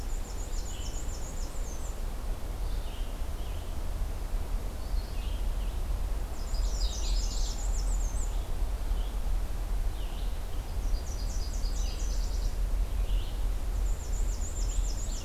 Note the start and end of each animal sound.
[0.00, 2.07] Black-and-white Warbler (Mniotilta varia)
[0.00, 15.25] Red-eyed Vireo (Vireo olivaceus)
[6.17, 8.49] Black-and-white Warbler (Mniotilta varia)
[6.39, 7.71] Canada Warbler (Cardellina canadensis)
[10.56, 12.59] Nashville Warbler (Leiothlypis ruficapilla)
[13.60, 15.25] Black-and-white Warbler (Mniotilta varia)

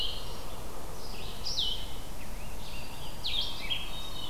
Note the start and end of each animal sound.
[0.00, 0.65] Hermit Thrush (Catharus guttatus)
[0.00, 4.29] Blue-headed Vireo (Vireo solitarius)
[1.77, 3.37] Scarlet Tanager (Piranga olivacea)
[3.42, 4.29] Hermit Thrush (Catharus guttatus)

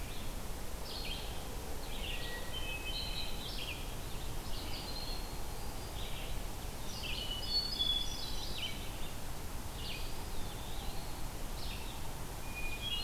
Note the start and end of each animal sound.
[0.00, 5.06] Red-eyed Vireo (Vireo olivaceus)
[2.22, 3.91] Hermit Thrush (Catharus guttatus)
[4.75, 6.09] Hermit Thrush (Catharus guttatus)
[5.84, 13.03] Red-eyed Vireo (Vireo olivaceus)
[7.04, 8.79] Hermit Thrush (Catharus guttatus)
[9.62, 11.43] Eastern Wood-Pewee (Contopus virens)
[12.37, 13.03] Hermit Thrush (Catharus guttatus)

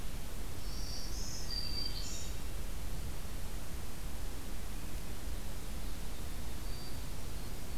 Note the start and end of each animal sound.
[0.56, 2.63] Black-throated Green Warbler (Setophaga virens)
[6.60, 7.78] Hermit Thrush (Catharus guttatus)

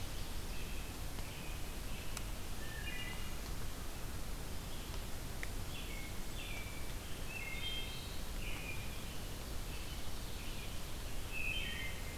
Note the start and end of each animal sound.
[0.00, 0.76] Ovenbird (Seiurus aurocapilla)
[0.49, 3.11] American Robin (Turdus migratorius)
[2.27, 3.39] Wood Thrush (Hylocichla mustelina)
[4.65, 6.98] American Robin (Turdus migratorius)
[7.18, 8.12] Wood Thrush (Hylocichla mustelina)
[8.26, 11.02] American Robin (Turdus migratorius)
[11.22, 12.17] Wood Thrush (Hylocichla mustelina)

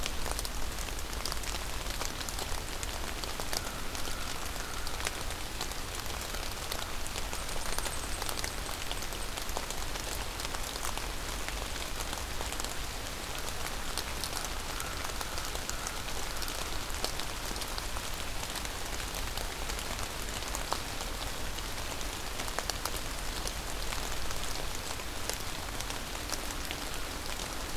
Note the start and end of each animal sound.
[3.34, 5.31] American Crow (Corvus brachyrhynchos)
[7.20, 9.31] unidentified call
[14.52, 16.96] American Crow (Corvus brachyrhynchos)

